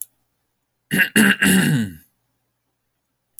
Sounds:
Throat clearing